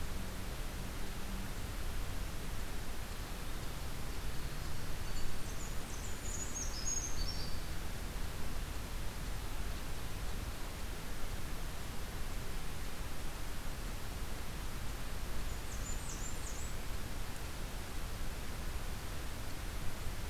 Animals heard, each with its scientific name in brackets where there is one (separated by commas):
Brown Creeper (Certhia americana), Blackburnian Warbler (Setophaga fusca)